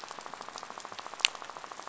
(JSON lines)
{"label": "biophony, rattle", "recorder": "SoundTrap 500"}